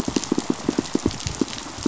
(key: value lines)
label: biophony, pulse
recorder: SoundTrap 500